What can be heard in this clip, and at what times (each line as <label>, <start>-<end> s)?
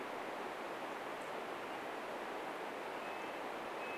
Red-breasted Nuthatch song, 2-4 s